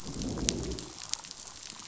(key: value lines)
label: biophony, growl
recorder: SoundTrap 500